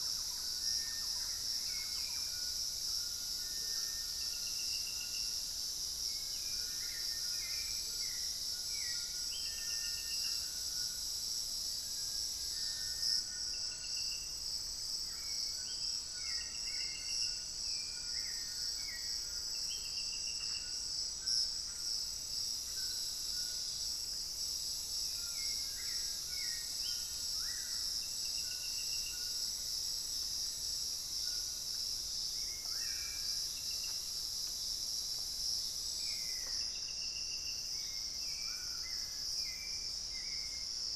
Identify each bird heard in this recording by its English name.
Thrush-like Wren, Little Tinamou, White-throated Toucan, Hauxwell's Thrush, Amazonian Motmot, unidentified bird, Screaming Piha, Black-faced Antthrush